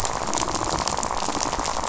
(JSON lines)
{"label": "biophony, rattle", "recorder": "SoundTrap 500"}